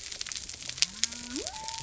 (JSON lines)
{"label": "biophony", "recorder": "SoundTrap 300"}